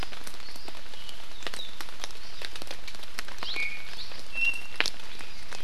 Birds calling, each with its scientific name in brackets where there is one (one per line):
Iiwi (Drepanis coccinea)